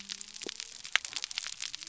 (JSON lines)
{"label": "biophony", "recorder": "SoundTrap 300"}